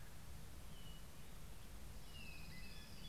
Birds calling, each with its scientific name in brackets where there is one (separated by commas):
Orange-crowned Warbler (Leiothlypis celata), Black-headed Grosbeak (Pheucticus melanocephalus)